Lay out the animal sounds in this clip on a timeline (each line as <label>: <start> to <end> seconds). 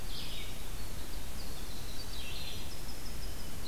Red-eyed Vireo (Vireo olivaceus): 0.0 to 3.7 seconds
Winter Wren (Troglodytes hiemalis): 0.6 to 3.7 seconds